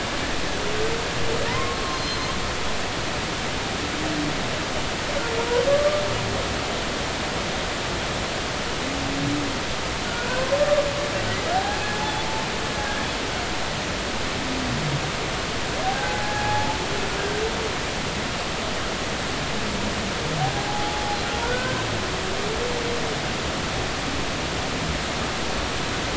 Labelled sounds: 1.5	2.3	humpback whale, 0.90 to 4.3 kHz
5.7	6.0	humpback whale, 1.1 to 1.2 kHz
10.2	10.5	humpback whale, 0.93 to 2.6 kHz
11.5	11.9	humpback whale, 0.80 to 0.86 kHz
12.8	13.1	humpback whale, 1.6 to 1.8 kHz
15.8	16.8	humpback whale, 0.80 to 1.7 kHz
20.5	21.8	humpback whale, 0.80 to 1.6 kHz

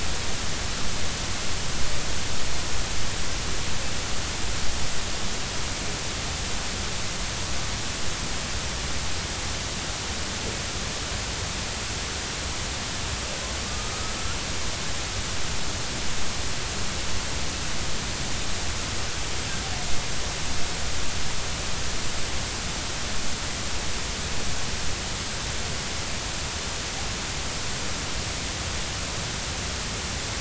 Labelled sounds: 13.7	13.9	killer whale, northern resident, A clan, AB subclan, 1.2 to 1.3 kHz

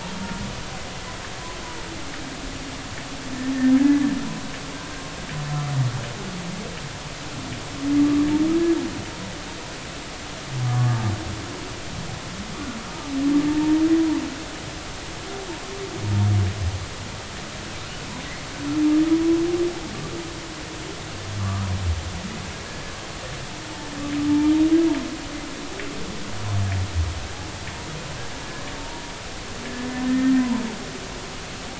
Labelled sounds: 3.8	4.1	humpback whale, 1.6 to 1.8 kHz
10.7	11.0	humpback whale, 1.1 to 1.2 kHz
13.5	13.8	humpback whale, 0.86 to 0.96 kHz
21.4	21.7	humpback whale, 1.1 to 1.3 kHz
22.7	22.9	humpback whale, 1.6 to 1.7 kHz
28.8	29.0	humpback whale, 0.86 to 0.99 kHz
30.1	30.3	humpback whale, 1.7 to 1.9 kHz

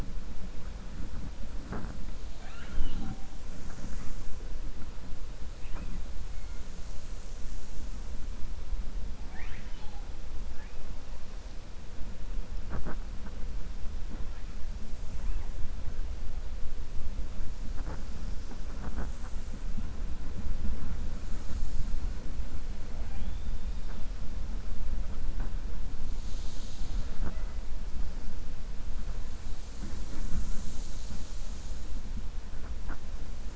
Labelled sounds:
9.2	10.0	killer whale, 0.75 to 4.3 kHz

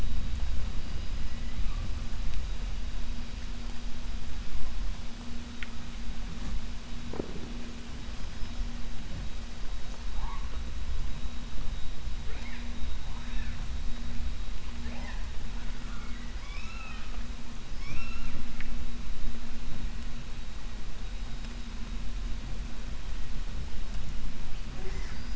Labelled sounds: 13.1	13.6	killer whale, 0.92 to 3.8 kHz
15.8	17.2	killer whale, 0.76 to 6.6 kHz

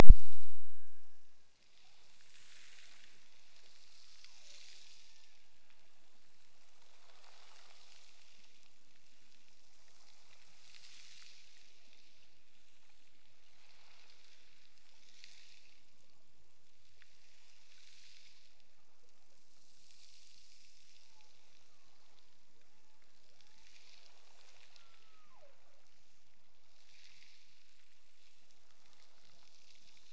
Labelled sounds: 0.4	1.6	killer whale, Bigg's (transient), Gulf of Alaska transient, 1.4 to 2.0 kHz
3.9	6.1	killer whale, Bigg's (transient), Gulf of Alaska transient, 0.34 to 2.0 kHz
22.6	23.8	killer whale, Bigg's (transient), Gulf of Alaska transient, 0.25 to 1.1 kHz
24.7	25.9	killer whale, Bigg's (transient), Gulf of Alaska transient, 0.39 to 1.4 kHz

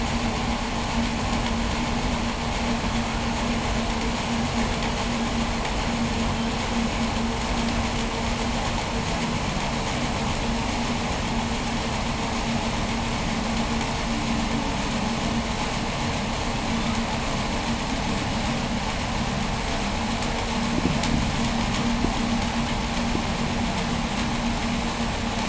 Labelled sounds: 16.4	17.1	humpback whale, 1.0 to 7.4 kHz

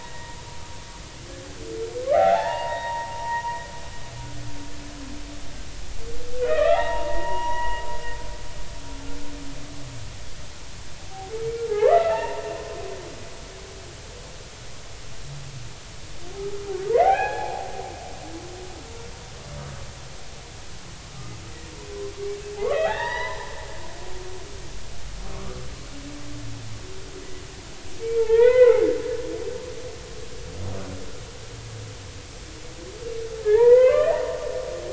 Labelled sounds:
2.1	3.6	humpback whale, 0.80 to 3.8 kHz
6.4	7.8	humpback whale, 0.80 to 3.0 kHz
11.7	12.4	humpback whale, 0.80 to 2.9 kHz
17.0	18.5	humpback whale, 0.80 to 3.4 kHz
22.6	23.5	humpback whale, 0.80 to 6.0 kHz
25.3	25.6	humpback whale, 1.1 to 1.4 kHz
28.0	28.9	humpback whale, 0.80 to 4.1 kHz
33.4	34.2	humpback whale, 0.80 to 2.1 kHz

